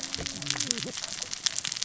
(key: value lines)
label: biophony, cascading saw
recorder: SoundTrap 600 or HydroMoth